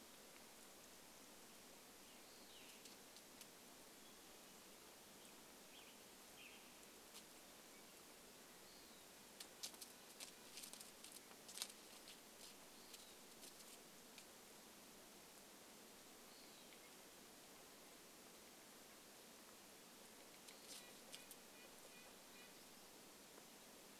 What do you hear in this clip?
Western Wood-Pewee song, Western Tanager song, Red-breasted Nuthatch song